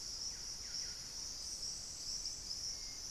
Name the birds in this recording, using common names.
Buff-breasted Wren